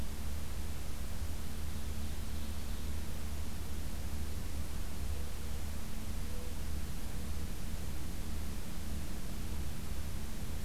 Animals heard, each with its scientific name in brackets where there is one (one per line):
Ovenbird (Seiurus aurocapilla)